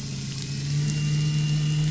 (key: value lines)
label: anthrophony, boat engine
recorder: SoundTrap 500